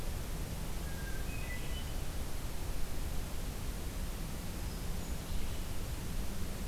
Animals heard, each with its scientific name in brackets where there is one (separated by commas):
Red-eyed Vireo (Vireo olivaceus), Hermit Thrush (Catharus guttatus)